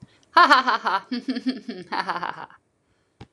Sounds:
Laughter